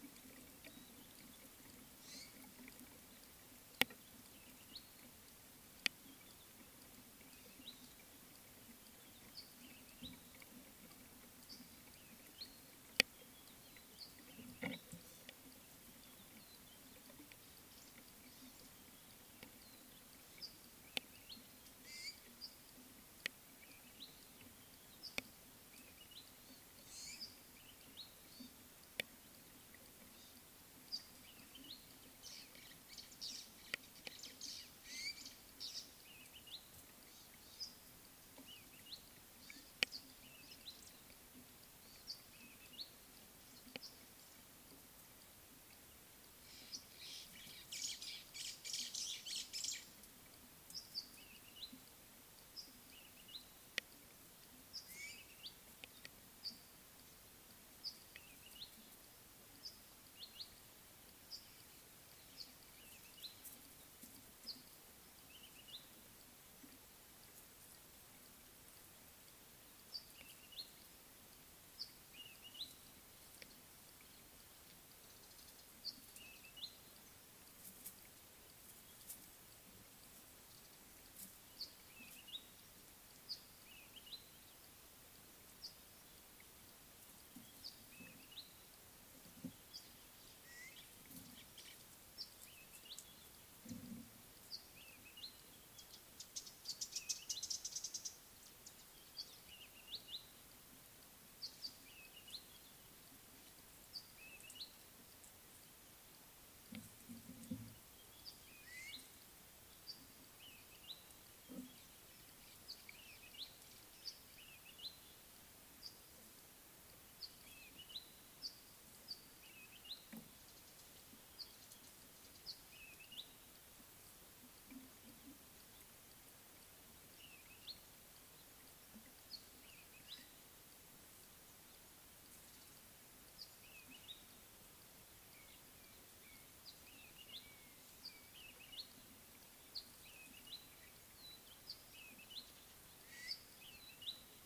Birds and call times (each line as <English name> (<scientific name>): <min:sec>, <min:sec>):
Red-backed Scrub-Robin (Cercotrichas leucophrys): 0:04.7, 0:12.4, 0:24.0, 0:31.7, 0:36.5, 0:38.9, 0:42.8, 0:53.3, 0:56.5, 0:58.6, 1:00.2, 1:03.2, 1:05.7, 1:10.3, 1:12.5, 1:16.4, 1:22.3, 1:24.0, 1:28.3, 1:32.9, 1:35.1, 1:37.3, 1:39.9, 1:41.4, 1:44.2, 1:48.8, 1:50.8, 1:53.4, 1:54.8, 1:57.6, 1:59.6, 2:03.0, 2:07.4, 2:10.1, 2:13.7, 2:17.1, 2:18.0, 2:20.5, 2:22.1
White-browed Sparrow-Weaver (Plocepasser mahali): 0:33.3, 0:48.7